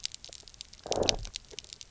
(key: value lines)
label: biophony, low growl
recorder: SoundTrap 300